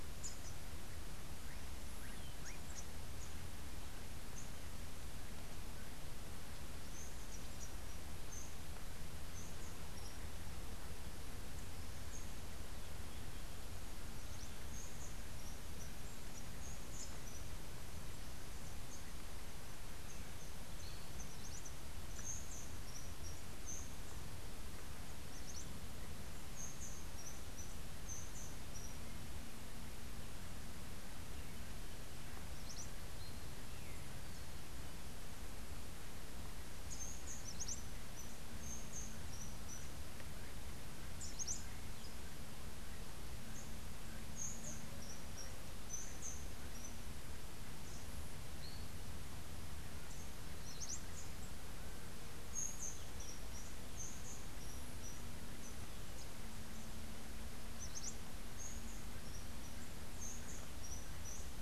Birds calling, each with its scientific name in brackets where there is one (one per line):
Rufous-tailed Hummingbird (Amazilia tzacatl)
Cabanis's Wren (Cantorchilus modestus)